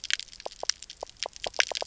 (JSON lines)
{"label": "biophony, knock croak", "recorder": "SoundTrap 300"}